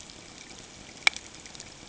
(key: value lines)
label: ambient
recorder: HydroMoth